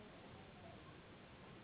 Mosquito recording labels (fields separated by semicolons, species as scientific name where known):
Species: Anopheles gambiae s.s.; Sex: female; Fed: unfed; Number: one; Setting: insect culture